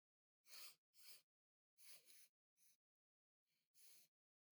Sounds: Sniff